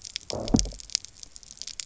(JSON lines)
{"label": "biophony, low growl", "recorder": "SoundTrap 300"}